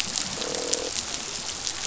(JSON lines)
{"label": "biophony, croak", "recorder": "SoundTrap 500"}